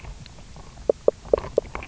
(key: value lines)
label: biophony, knock croak
recorder: SoundTrap 300